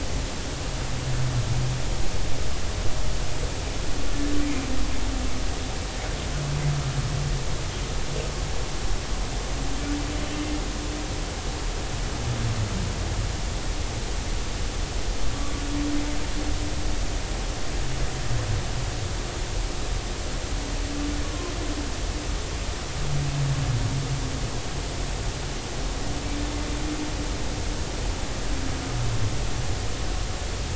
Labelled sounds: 21.2	21.5	humpback whale, 0.99 to 1.2 kHz

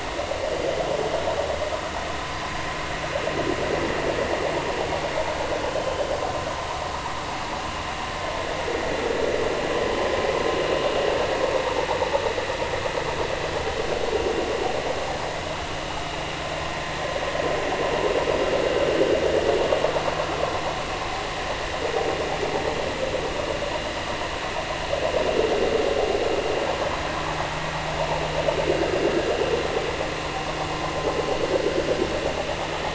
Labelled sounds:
5.7	6.0	vessel noise, 3.0 to 3.2 kHz

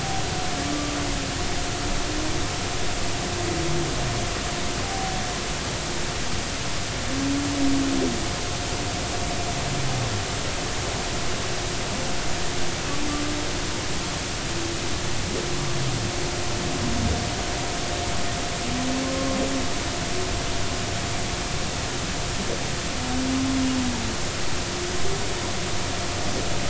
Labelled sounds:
4.8	5.1	humpback whale, 0.80 to 0.83 kHz

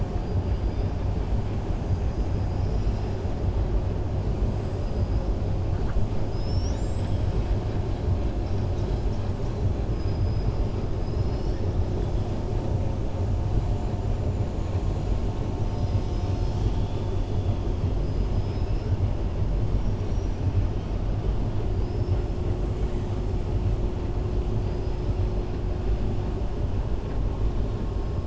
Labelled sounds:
14.2	14.8	killer whale, 6.6 to 7.3 kHz
18.3	18.9	killer whale, 5.0 to 5.7 kHz
19.7	20.4	killer whale, 5.5 to 6.0 kHz
21.8	22.2	killer whale, 4.5 to 5.4 kHz
24.5	25.0	killer whale, 4.3 to 5.2 kHz

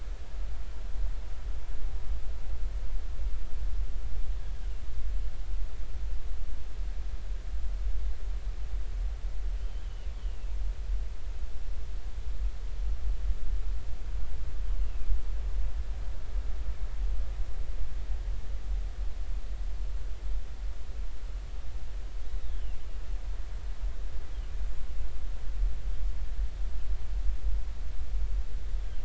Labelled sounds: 9.6	10.6	killer whale, northern resident, G clan, GG subclan, 2.5 to 3.2 kHz
14.8	15.1	killer whale, northern resident, G clan, GG subclan, 2.3 to 2.9 kHz
22.4	22.8	killer whale, northern resident, G clan, GG subclan, 2.6 to 3.9 kHz

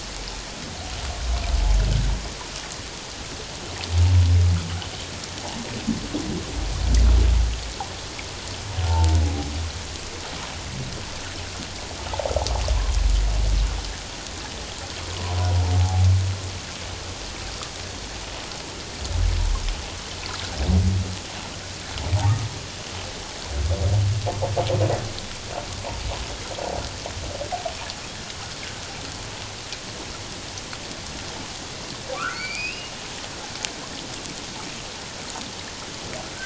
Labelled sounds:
8.9	9.2	humpback whale, 0.81 to 1.0 kHz
15.8	16.1	humpback whale, 0.78 to 0.94 kHz
32.1	32.9	humpback whale, 1.0 to 5.2 kHz

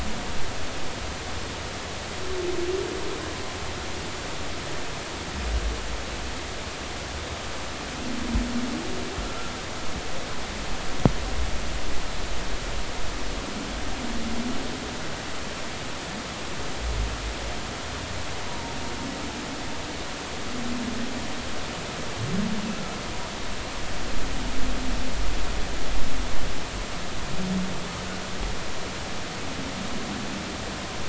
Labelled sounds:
9.2	9.5	humpback whale, 1.3 to 1.4 kHz
18.5	18.7	humpback whale, 0.86 to 0.99 kHz

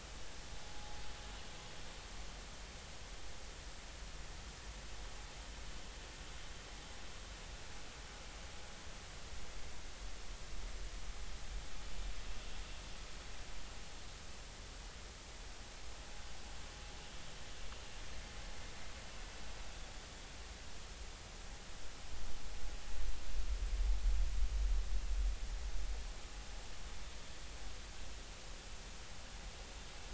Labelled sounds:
0.7	1.0	vessel noise, 0.80 to 0.86 kHz

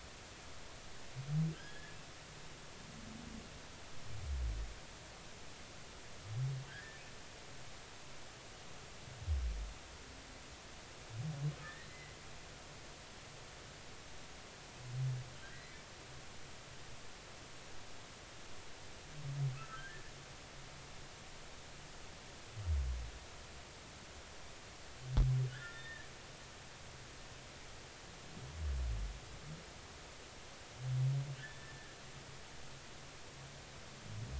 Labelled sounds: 1.5	2.0	humpback whale, 1.5 to 3.4 kHz
6.7	7.0	humpback whale, 1.5 to 1.9 kHz
11.6	12.2	humpback whale, 1.6 to 2.1 kHz
15.5	15.8	humpback whale, 1.8 to 2.1 kHz
19.6	20.0	humpback whale, 1.2 to 1.9 kHz
25.5	26.1	humpback whale, 1.3 to 3.7 kHz
31.4	32.0	humpback whale, 1.6 to 2.0 kHz

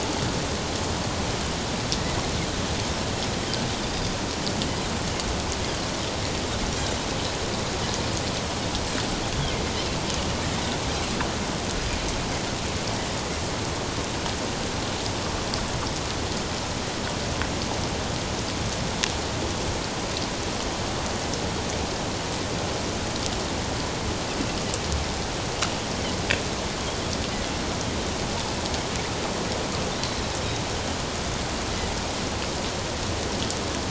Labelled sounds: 3.8	4.1	Pacific white-sided dolphin, 4.7 to 5.0 kHz

